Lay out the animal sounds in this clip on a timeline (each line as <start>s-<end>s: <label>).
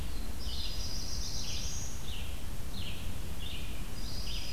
0.0s-4.5s: Red-eyed Vireo (Vireo olivaceus)
0.1s-2.2s: Black-throated Blue Warbler (Setophaga caerulescens)
3.8s-4.5s: Dark-eyed Junco (Junco hyemalis)